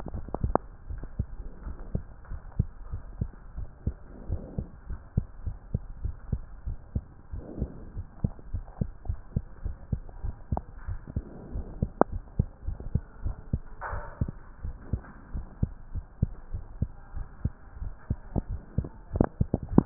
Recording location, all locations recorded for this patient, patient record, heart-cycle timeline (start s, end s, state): mitral valve (MV)
aortic valve (AV)+pulmonary valve (PV)+tricuspid valve (TV)+mitral valve (MV)
#Age: Child
#Sex: Male
#Height: 126.0 cm
#Weight: 25.9 kg
#Pregnancy status: False
#Murmur: Absent
#Murmur locations: nan
#Most audible location: nan
#Systolic murmur timing: nan
#Systolic murmur shape: nan
#Systolic murmur grading: nan
#Systolic murmur pitch: nan
#Systolic murmur quality: nan
#Diastolic murmur timing: nan
#Diastolic murmur shape: nan
#Diastolic murmur grading: nan
#Diastolic murmur pitch: nan
#Diastolic murmur quality: nan
#Outcome: Normal
#Campaign: 2015 screening campaign
0.00	0.75	unannotated
0.75	0.88	diastole
0.88	0.98	S1
0.98	1.13	systole
1.13	1.26	S2
1.26	1.64	diastole
1.64	1.76	S1
1.76	1.90	systole
1.90	2.04	S2
2.04	2.30	diastole
2.30	2.40	S1
2.40	2.58	systole
2.58	2.70	S2
2.70	2.90	diastole
2.90	3.04	S1
3.04	3.18	systole
3.18	3.32	S2
3.32	3.56	diastole
3.56	3.68	S1
3.68	3.84	systole
3.84	3.98	S2
3.98	4.26	diastole
4.26	4.42	S1
4.42	4.56	systole
4.56	4.68	S2
4.68	4.88	diastole
4.88	5.00	S1
5.00	5.12	systole
5.12	5.26	S2
5.26	5.44	diastole
5.44	5.58	S1
5.58	5.72	systole
5.72	5.82	S2
5.82	6.02	diastole
6.02	6.16	S1
6.16	6.28	systole
6.28	6.44	S2
6.44	6.64	diastole
6.64	6.76	S1
6.76	6.92	systole
6.92	7.04	S2
7.04	7.30	diastole
7.30	7.42	S1
7.42	7.58	systole
7.58	7.70	S2
7.70	7.94	diastole
7.94	8.06	S1
8.06	8.20	systole
8.20	8.32	S2
8.32	8.52	diastole
8.52	8.66	S1
8.66	8.80	systole
8.80	8.90	S2
8.90	9.08	diastole
9.08	9.20	S1
9.20	9.34	systole
9.34	9.44	S2
9.44	9.64	diastole
9.64	9.76	S1
9.76	9.90	systole
9.90	10.04	S2
10.04	10.22	diastole
10.22	10.36	S1
10.36	10.50	systole
10.50	10.64	S2
10.64	10.86	diastole
10.86	10.98	S1
10.98	11.14	systole
11.14	11.26	S2
11.26	11.52	diastole
11.52	11.68	S1
11.68	11.80	systole
11.80	11.90	S2
11.90	12.10	diastole
12.10	12.24	S1
12.24	12.38	systole
12.38	12.48	S2
12.48	12.66	diastole
12.66	12.80	S1
12.80	12.92	systole
12.92	13.04	S2
13.04	13.24	diastole
13.24	13.38	S1
13.38	13.52	systole
13.52	13.62	S2
13.62	13.90	diastole
13.90	14.04	S1
14.04	14.20	systole
14.20	14.34	S2
14.34	14.62	diastole
14.62	14.76	S1
14.76	14.92	systole
14.92	15.04	S2
15.04	15.32	diastole
15.32	15.46	S1
15.46	15.58	systole
15.58	15.72	S2
15.72	15.92	diastole
15.92	16.04	S1
16.04	16.18	systole
16.18	16.30	S2
16.30	16.52	diastole
16.52	16.66	S1
16.66	16.78	systole
16.78	16.90	S2
16.90	17.14	diastole
17.14	17.26	S1
17.26	17.40	systole
17.40	17.54	S2
17.54	17.80	diastole
17.80	17.94	S1
17.94	18.10	systole
18.10	18.20	S2
18.20	18.46	diastole
18.46	18.60	S1
18.60	18.76	systole
18.76	19.86	unannotated